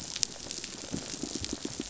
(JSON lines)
{"label": "biophony, pulse", "recorder": "SoundTrap 500"}